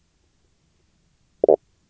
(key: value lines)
label: biophony, knock croak
recorder: SoundTrap 300